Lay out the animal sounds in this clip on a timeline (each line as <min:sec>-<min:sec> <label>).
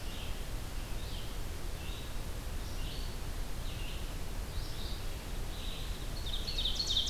0:00.0-0:07.1 Red-eyed Vireo (Vireo olivaceus)
0:06.2-0:07.1 Ovenbird (Seiurus aurocapilla)